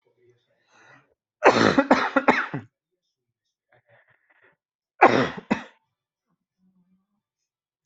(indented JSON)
{
  "expert_labels": [
    {
      "quality": "good",
      "cough_type": "unknown",
      "dyspnea": false,
      "wheezing": false,
      "stridor": false,
      "choking": false,
      "congestion": false,
      "nothing": true,
      "diagnosis": "lower respiratory tract infection",
      "severity": "mild"
    }
  ]
}